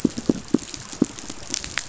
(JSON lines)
{"label": "biophony, pulse", "recorder": "SoundTrap 500"}